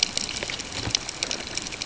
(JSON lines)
{"label": "ambient", "recorder": "HydroMoth"}